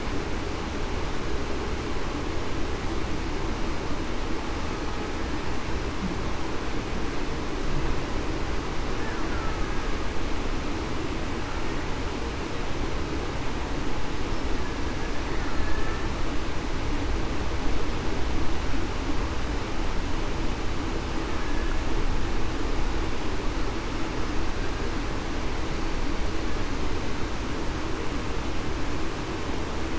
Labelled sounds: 15.5	15.9	killer whale, Bigg's (transient), 1.7 to 1.8 kHz

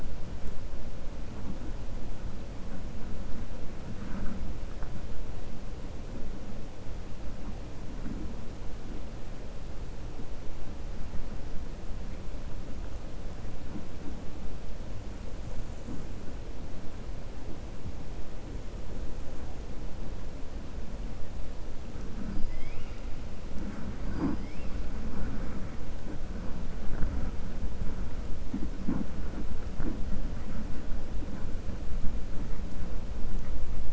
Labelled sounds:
22.3	23.0	killer whale, 2.0 to 5.2 kHz
24.0	24.6	killer whale, 4.5 to 5.3 kHz

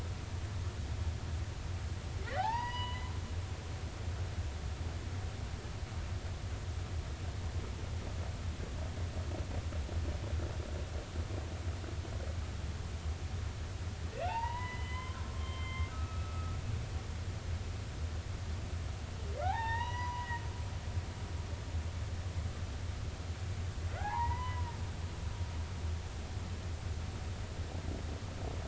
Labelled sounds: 2.4	3.1	humpback whale, 0.80 to 5.0 kHz
14.1	16.6	humpback whale, 0.80 to 3.3 kHz
19.4	20.4	humpback whale, 0.80 to 5.9 kHz
24.0	24.7	humpback whale, 0.80 to 3.1 kHz

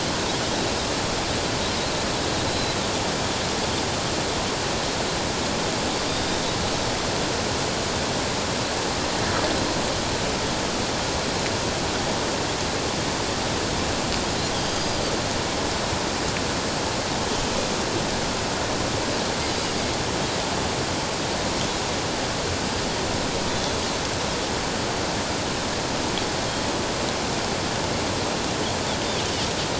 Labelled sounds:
2.5	2.8	Pacific white-sided dolphin, 3.9 to 4.1 kHz
14.6	15.0	Pacific white-sided dolphin, 4.6 to 4.9 kHz
19.4	19.8	Pacific white-sided dolphin, 4.7 to 4.9 kHz

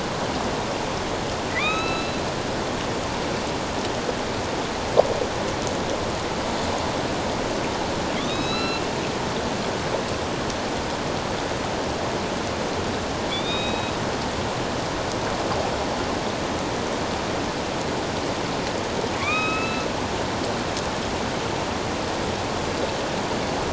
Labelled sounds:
1.5	2.2	killer whale, northern resident, A clan, AB subclan, 1.0 to 6.6 kHz
8.1	8.8	killer whale, northern resident, A clan, AB subclan, 1.3 to 6.6 kHz
13.3	13.9	killer whale, northern resident, A clan, AB subclan, 2.2 to 3.9 kHz
19.2	19.9	killer whale, northern resident, A clan, AB subclan, 1.0 to 5.2 kHz

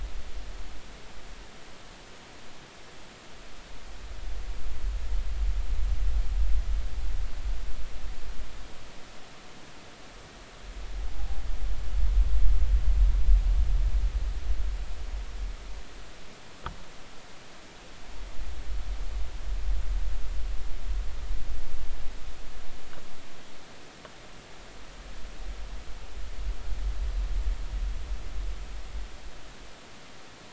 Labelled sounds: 11.2	11.4	noise likely from the mooring, 0.80 to 0.86 kHz

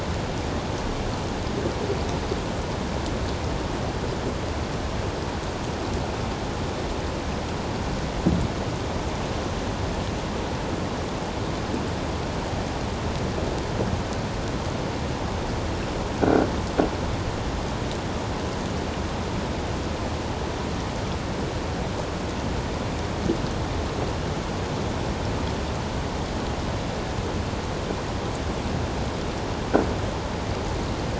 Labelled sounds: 16.2	16.5	croaking sound likely from a nearby submerged object, 1.3 to 1.6 kHz

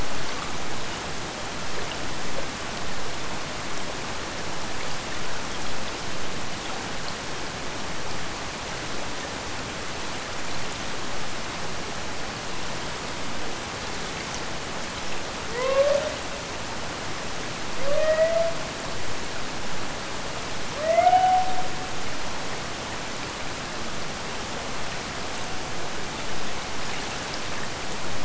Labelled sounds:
15.4	16.3	killer whale, Bigg's (transient), Gulf of Alaska transient, 0.26 to 2.8 kHz
17.8	18.7	killer whale, Bigg's (transient), Gulf of Alaska transient, 0.41 to 2.6 kHz
20.7	22.0	killer whale, Bigg's (transient), Gulf of Alaska transient, 0.35 to 3.0 kHz

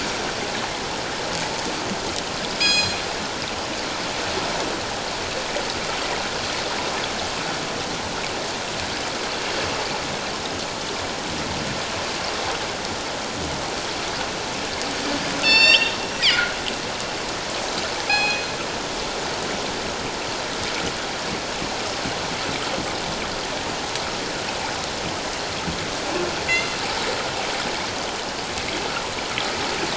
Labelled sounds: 2.6	3.0	killer whale, northern resident, G clan, call N24ii, 2.3 to 7.5 kHz
15.4	16.5	killer whale, northern resident, G clan, call N24i, 1.7 to 7.4 kHz
18.1	18.4	killer whale, northern resident, G clan, call N24ii, 2.3 to 4.2 kHz
26.5	26.8	killer whale, northern resident, G clan, call N24ii, 4.0 to 4.3 kHz

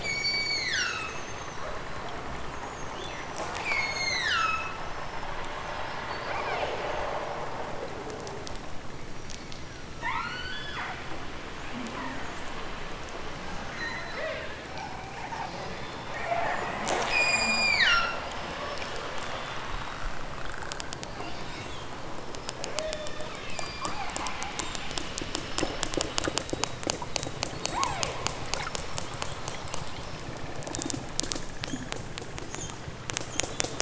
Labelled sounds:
0.0	1.2	killer whale, southern Alaska resident, 1.0 to 8.0 kHz
3.6	4.8	killer whale, southern Alaska resident, 1.1 to 8.0 kHz
6.1	6.7	killer whale, southern Alaska resident, 0.69 to 6.0 kHz
9.0	10.9	killer whale, southern Alaska resident, 0.55 to 8.0 kHz
13.7	14.5	killer whale, southern Alaska resident, 0.28 to 8.0 kHz
15.4	16.3	killer whale, southern Alaska resident, 1.6 to 6.5 kHz
17.1	18.2	killer whale, southern Alaska resident, 0.96 to 8.0 kHz
22.7	24.7	killer whale, southern Alaska resident, 1.8 to 5.8 kHz
27.5	28.3	killer whale, southern Alaska resident, 0.23 to 8.0 kHz

